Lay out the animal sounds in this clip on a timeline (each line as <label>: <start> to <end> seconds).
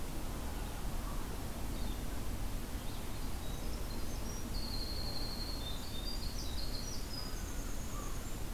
Red-eyed Vireo (Vireo olivaceus): 1.4 to 3.3 seconds
Winter Wren (Troglodytes hiemalis): 2.8 to 8.5 seconds
American Crow (Corvus brachyrhynchos): 7.2 to 8.3 seconds